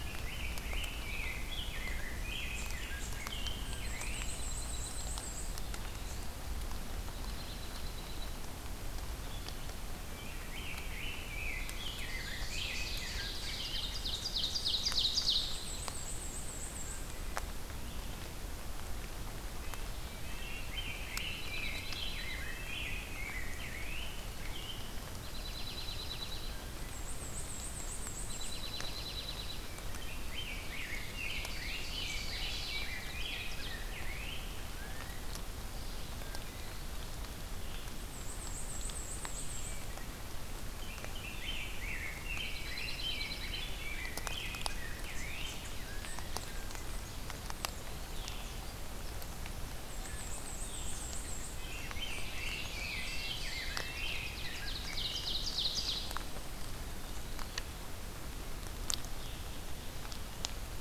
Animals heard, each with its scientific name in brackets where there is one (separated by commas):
Dark-eyed Junco (Junco hyemalis), Rose-breasted Grosbeak (Pheucticus ludovicianus), Eastern Wood-Pewee (Contopus virens), Ovenbird (Seiurus aurocapilla), Black-and-white Warbler (Mniotilta varia)